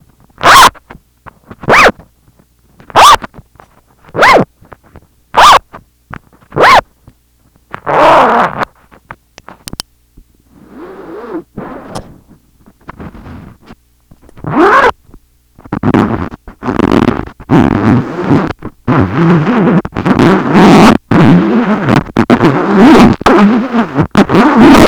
does the zipper pace change?
yes